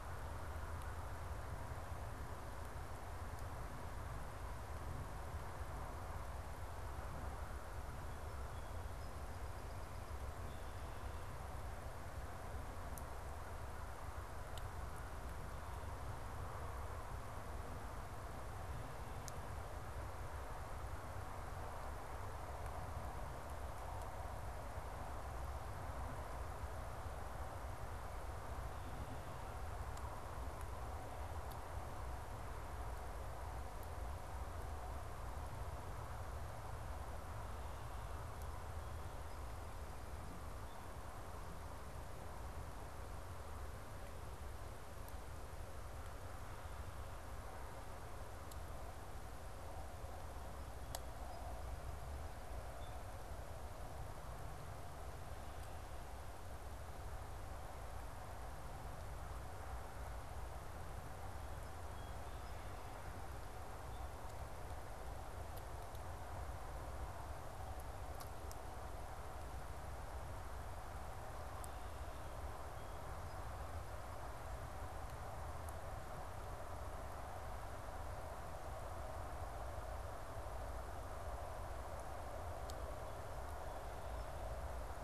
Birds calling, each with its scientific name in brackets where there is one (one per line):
Song Sparrow (Melospiza melodia)